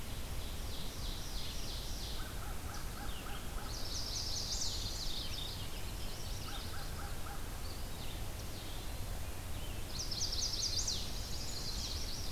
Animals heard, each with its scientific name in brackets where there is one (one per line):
Mourning Warbler (Geothlypis philadelphia)
Eastern Wood-Pewee (Contopus virens)
Ovenbird (Seiurus aurocapilla)
Red-eyed Vireo (Vireo olivaceus)
American Crow (Corvus brachyrhynchos)
Chestnut-sided Warbler (Setophaga pensylvanica)